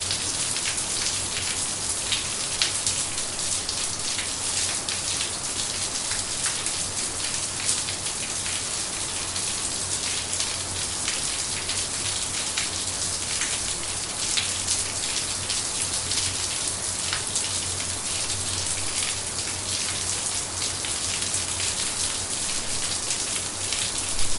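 Raindrops falling continuously on a flat surface. 0.0 - 24.3

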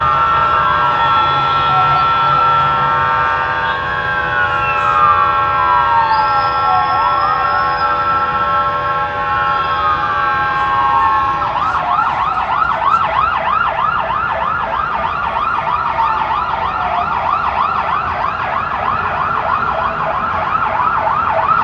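Traffic sounds. 0.0 - 21.6
The siren of a fire truck. 0.0 - 21.6

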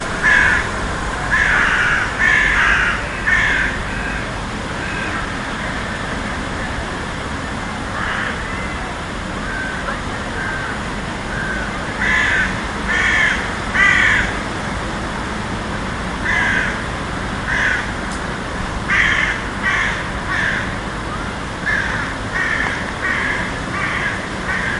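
Multiple crows are cawing repeatedly. 0.0 - 4.5
Loud wind blowing outdoors. 0.0 - 24.8
Birds crowing in the distance, fading away over time. 5.8 - 11.0
Multiple crows are cawing repeatedly. 11.8 - 14.6
A crow is cawing repeatedly. 16.1 - 18.1
Multiple crows are cawing repeatedly. 18.8 - 20.8
Multiple crows are cawing repeatedly. 21.5 - 24.8

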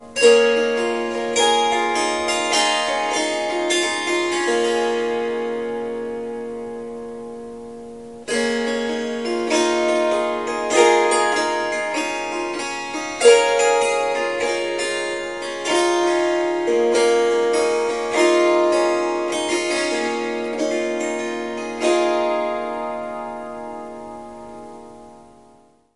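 Someone is playing a musical instrument. 0.0 - 6.1
A Swarmandal is playing. 8.3 - 26.0
A person is playing a swarmandal. 8.3 - 26.0

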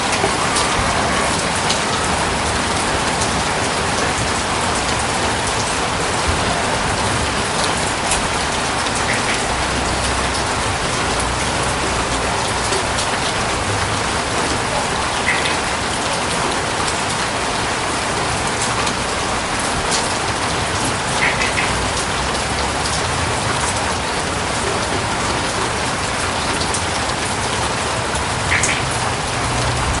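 It is raining outside. 0.0 - 30.0

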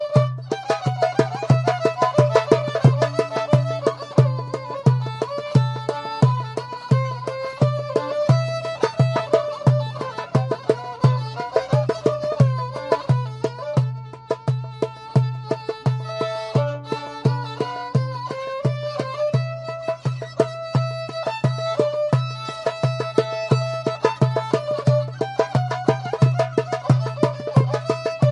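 Arabic rhythmic upbeat music performed on multiple instruments. 0.0 - 28.3

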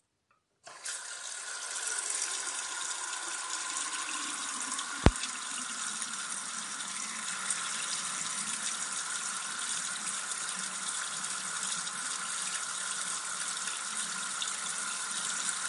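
Water running continuously with varying loudness. 0.7 - 15.7
A loud static sound. 5.0 - 5.1

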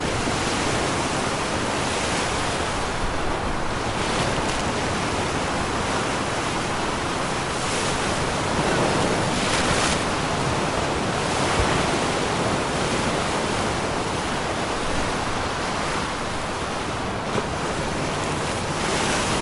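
Background noise is loud. 0.0 - 19.4
Waves hitting the shore loudly. 3.2 - 5.1
Waves hitting the shore loudly. 7.9 - 10.5
Waves hitting the shore loudly. 18.6 - 19.4

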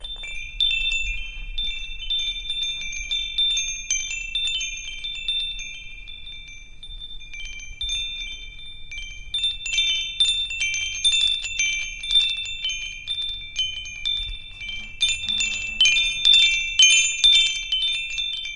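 A wind chime tinkling softly in the wind. 0.1 - 9.2
A wind chime tingles loudly in the wind and then fades away. 9.2 - 15.0
A wind chime jingles loudly and irregularly in the wind. 15.0 - 18.6

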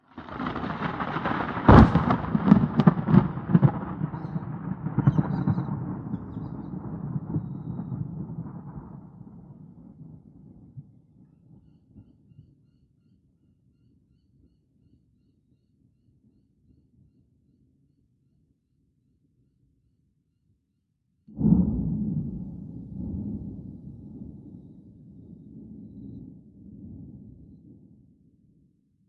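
Thunder rumbles outside, heard from indoors. 0.0 - 8.6
Silent thunder is heard from outside. 21.4 - 23.8

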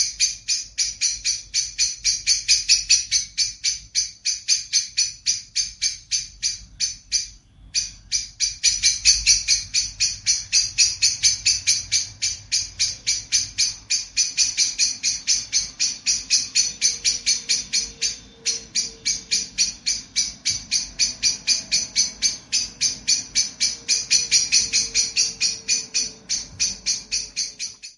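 A blackbird chirps constantly. 0.0 - 28.0

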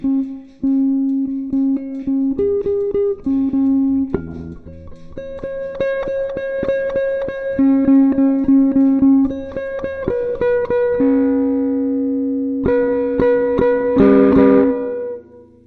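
A quiet rustling sound occurs in the background. 0.0 - 11.0
A guitar plays a melodic tune. 0.0 - 15.7

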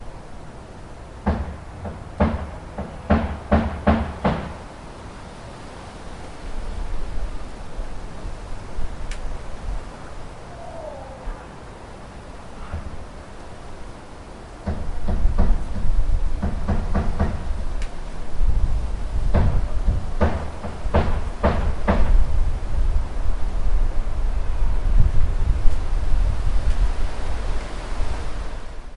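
White noise. 0.0 - 1.1
A person hitting something with a hammer multiple times in a consistent rhythm. 1.1 - 4.6
White noise. 4.7 - 14.7
A person hitting something with a hammer multiple times in a consistent rhythm. 14.7 - 17.5
White noise. 17.6 - 18.9
A person hitting something with a hammer multiple times in a consistent rhythm. 19.0 - 22.4
White noise. 22.5 - 29.0

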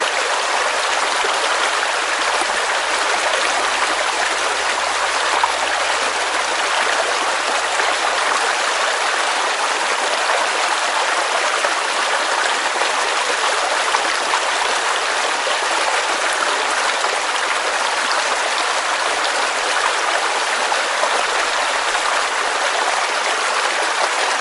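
A rhythmic loud sound of water flowing outdoors. 0.0 - 24.4

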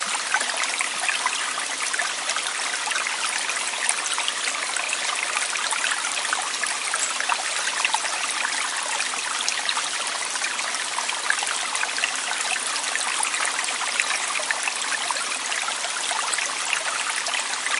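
A constant faint static noise of water echoes in the background. 0.0 - 17.8
Loud trickling and running water from a stream. 0.0 - 17.8

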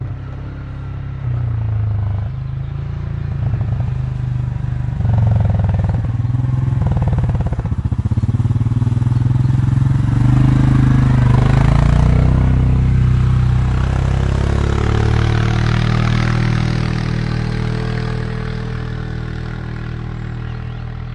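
A rattling enduro motorbike engine passes by outdoors. 0.0 - 21.1

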